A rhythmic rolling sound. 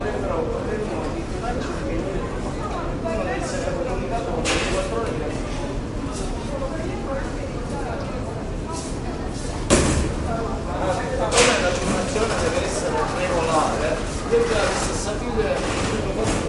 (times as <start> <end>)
12.1 14.3